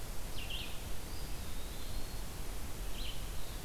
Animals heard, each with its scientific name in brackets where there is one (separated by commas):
Eastern Wood-Pewee (Contopus virens), Red-eyed Vireo (Vireo olivaceus)